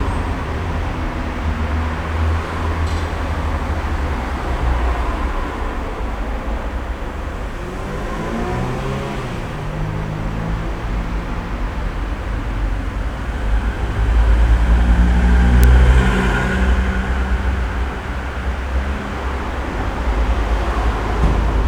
Are cars driving on the road?
yes